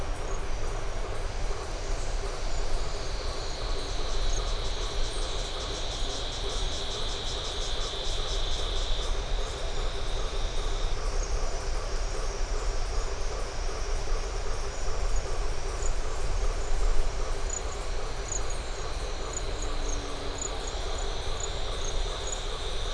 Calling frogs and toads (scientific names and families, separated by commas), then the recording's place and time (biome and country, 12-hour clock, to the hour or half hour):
Boana faber (Hylidae)
Atlantic Forest, Brazil, ~7pm